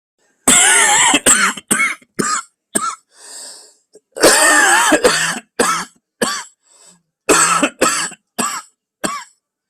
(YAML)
expert_labels:
- quality: good
  cough_type: dry
  dyspnea: false
  wheezing: true
  stridor: false
  choking: false
  congestion: false
  nothing: false
  diagnosis: obstructive lung disease
  severity: severe
age: 42
gender: male
respiratory_condition: true
fever_muscle_pain: false
status: symptomatic